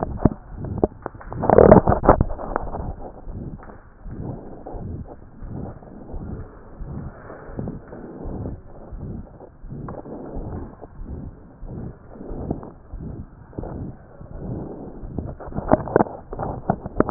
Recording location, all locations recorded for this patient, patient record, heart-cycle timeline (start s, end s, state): aortic valve (AV)
aortic valve (AV)+pulmonary valve (PV)+tricuspid valve (TV)+mitral valve (MV)
#Age: Child
#Sex: Male
#Height: 132.0 cm
#Weight: 36.6 kg
#Pregnancy status: False
#Murmur: Present
#Murmur locations: aortic valve (AV)+mitral valve (MV)+pulmonary valve (PV)+tricuspid valve (TV)
#Most audible location: pulmonary valve (PV)
#Systolic murmur timing: Holosystolic
#Systolic murmur shape: Plateau
#Systolic murmur grading: III/VI or higher
#Systolic murmur pitch: Medium
#Systolic murmur quality: Harsh
#Diastolic murmur timing: nan
#Diastolic murmur shape: nan
#Diastolic murmur grading: nan
#Diastolic murmur pitch: nan
#Diastolic murmur quality: nan
#Outcome: Abnormal
#Campaign: 2014 screening campaign
0.00	3.17	unannotated
3.17	3.27	diastole
3.27	3.38	S1
3.38	3.52	systole
3.52	3.60	S2
3.60	4.04	diastole
4.04	4.15	S1
4.15	4.29	systole
4.29	4.38	S2
4.38	4.74	diastole
4.74	4.85	S1
4.85	5.00	systole
5.00	5.08	S2
5.08	5.42	diastole
5.42	5.52	S1
5.52	5.65	systole
5.65	5.74	S2
5.74	6.12	diastole
6.12	6.21	S1
6.21	6.36	systole
6.36	6.44	S2
6.44	6.82	diastole
6.82	17.10	unannotated